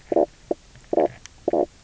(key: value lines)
label: biophony, knock croak
recorder: SoundTrap 300